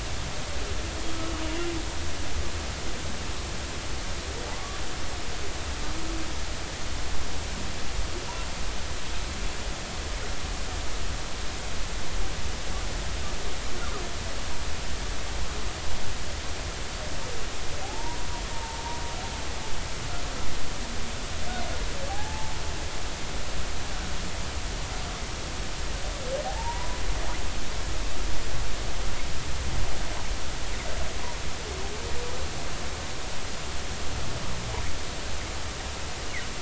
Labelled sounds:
4.6	4.8	humpback whale, 1.1 to 1.2 kHz
17.8	18.8	humpback whale, 0.80 to 1.0 kHz
22.1	22.6	humpback whale, 0.80 to 0.93 kHz
26.4	27.0	humpback whale, 0.80 to 1.0 kHz

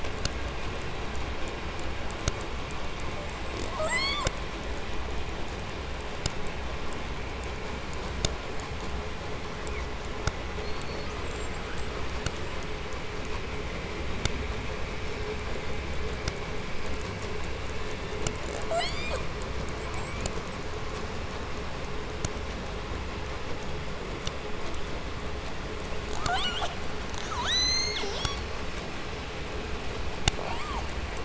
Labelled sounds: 3.3	4.4	killer whale, southern resident, J pod, call S44, 0.23 to 8.0 kHz
9.4	10.0	killer whale, 0.82 to 2.9 kHz
10.4	11.6	killer whale, southern resident, J pod, call S42, 3.2 to 8.0 kHz
11.7	13.0	killer whale, 6.8 to 8.0 kHz
18.4	19.4	killer whale, southern resident, J pod, call S44, 0.30 to 8.0 kHz
19.7	20.6	killer whale, southern resident, J pod, call S44, 1.4 to 8.0 kHz
26.1	26.8	killer whale, 0.34 to 8.0 kHz
27.1	28.5	killer whale, southern resident, J pod, call S02i, 0.25 to 8.0 kHz
30.3	31.0	killer whale, 0.22 to 8.0 kHz

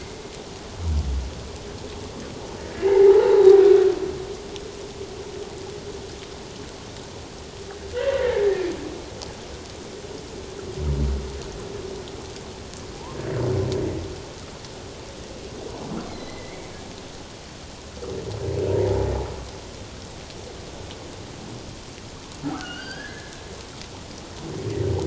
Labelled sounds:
2.8	3.6	humpback whale, 0.78 to 1.4 kHz
8.0	8.4	humpback whale, 1.7 to 2.0 kHz
16.1	16.7	humpback whale, 1.9 to 2.3 kHz
22.4	23.4	humpback whale, 1.1 to 5.1 kHz

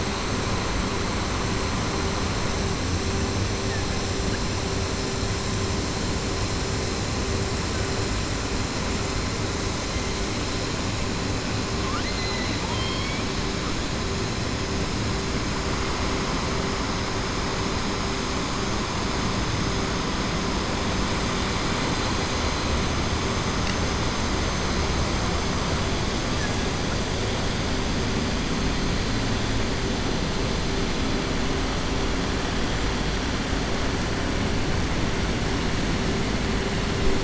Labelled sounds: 12.6	13.3	killer whale, 2.2 to 5.3 kHz

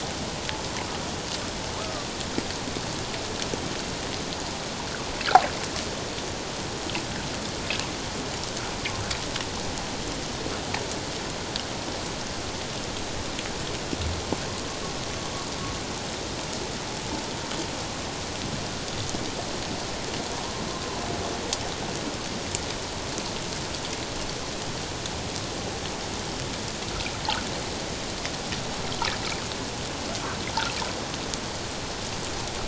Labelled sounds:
1.8	2.1	humpback whale, 1.0 to 1.3 kHz

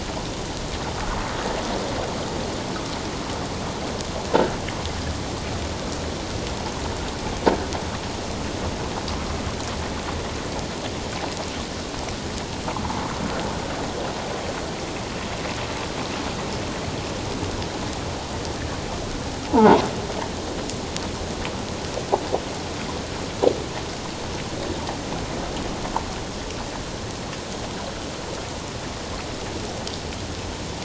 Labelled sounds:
19.5	19.8	croaking sound likely from a nearby submerged object, 0.78 to 1.2 kHz

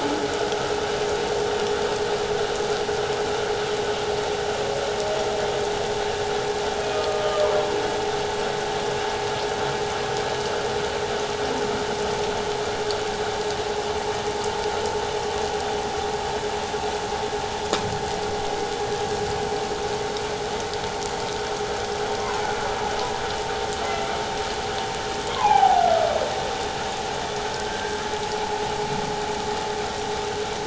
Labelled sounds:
6.8	7.4	humpback whale, 1.2 to 2.6 kHz
25.3	25.8	humpback whale, 0.78 to 1.1 kHz

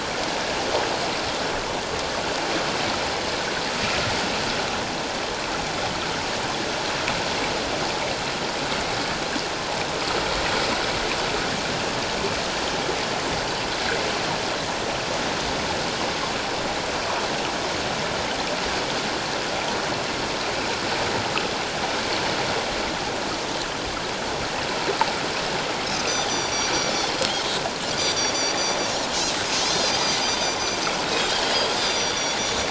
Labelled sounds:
26.1	26.7	Pacific white-sided dolphin, 3.3 to 6.2 kHz
27.9	28.6	Pacific white-sided dolphin, 3.4 to 7.1 kHz
29.7	30.4	Pacific white-sided dolphin, 3.9 to 6.1 kHz
31.0	32.4	Pacific white-sided dolphin, 3.4 to 7.6 kHz

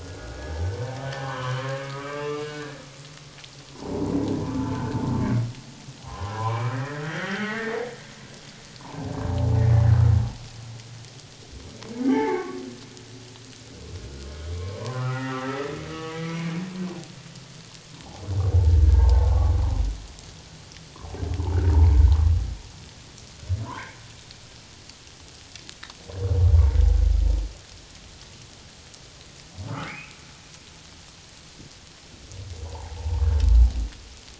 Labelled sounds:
0.0	0.8	humpback whale, 1.3 to 1.8 kHz
1.2	2.8	humpback whale, 0.78 to 3.1 kHz
3.7	4.2	humpback whale, 0.78 to 1.1 kHz
4.7	5.1	humpback whale, 1.4 to 1.7 kHz
6.0	7.8	humpback whale, 0.78 to 3.3 kHz
9.6	9.9	humpback whale, 2.0 to 2.1 kHz
12.0	12.6	humpback whale, 0.78 to 2.3 kHz
14.7	15.6	humpback whale, 0.88 to 2.0 kHz
15.9	16.5	humpback whale, 2.1 to 3.0 kHz
18.5	19.5	humpback whale, 0.78 to 1.7 kHz
21.6	21.9	humpback whale, 0.81 to 1.0 kHz
26.5	26.8	humpback whale, 0.81 to 1.2 kHz
29.9	30.2	humpback whale, 2.0 to 2.8 kHz
32.6	33.2	humpback whale, 0.78 to 1.1 kHz

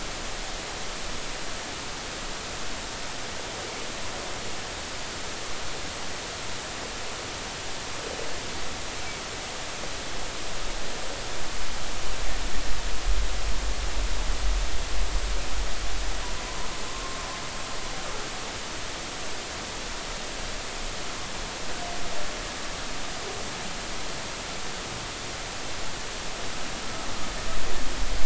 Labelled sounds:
16.9	17.2	humpback whale, 1.0 to 1.1 kHz

